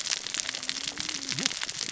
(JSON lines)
{"label": "biophony, cascading saw", "recorder": "SoundTrap 600 or HydroMoth"}